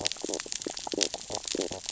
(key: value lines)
label: biophony, stridulation
recorder: SoundTrap 600 or HydroMoth